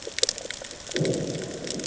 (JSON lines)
{"label": "anthrophony, bomb", "recorder": "HydroMoth"}